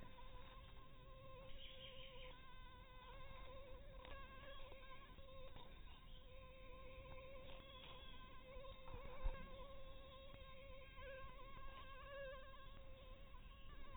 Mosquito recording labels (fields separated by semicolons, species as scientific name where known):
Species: Anopheles harrisoni; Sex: female; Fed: unfed; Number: one; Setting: cup